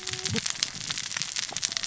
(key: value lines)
label: biophony, cascading saw
recorder: SoundTrap 600 or HydroMoth